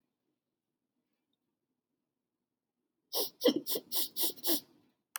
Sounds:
Sniff